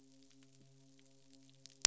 {"label": "biophony, midshipman", "recorder": "SoundTrap 500"}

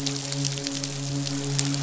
{"label": "biophony, midshipman", "recorder": "SoundTrap 500"}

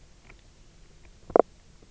{"label": "biophony, knock croak", "recorder": "SoundTrap 300"}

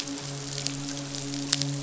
{"label": "biophony, midshipman", "recorder": "SoundTrap 500"}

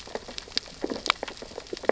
{"label": "biophony, sea urchins (Echinidae)", "recorder": "SoundTrap 600 or HydroMoth"}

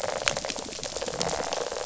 {"label": "biophony, rattle", "recorder": "SoundTrap 500"}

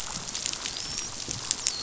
{"label": "biophony, dolphin", "recorder": "SoundTrap 500"}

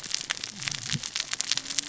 {"label": "biophony, cascading saw", "recorder": "SoundTrap 600 or HydroMoth"}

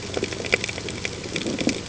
{"label": "ambient", "recorder": "HydroMoth"}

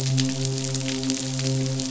{"label": "biophony, midshipman", "recorder": "SoundTrap 500"}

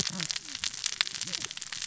{"label": "biophony, cascading saw", "recorder": "SoundTrap 600 or HydroMoth"}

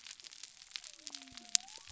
{"label": "biophony", "recorder": "SoundTrap 300"}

